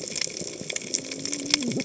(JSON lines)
{"label": "biophony, cascading saw", "recorder": "HydroMoth"}